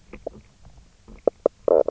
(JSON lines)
{"label": "biophony, knock croak", "recorder": "SoundTrap 300"}